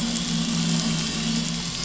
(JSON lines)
{"label": "anthrophony, boat engine", "recorder": "SoundTrap 500"}